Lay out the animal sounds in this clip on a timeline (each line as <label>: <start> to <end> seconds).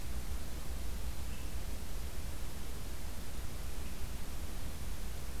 Swainson's Thrush (Catharus ustulatus): 1.2 to 1.5 seconds
Swainson's Thrush (Catharus ustulatus): 3.7 to 3.9 seconds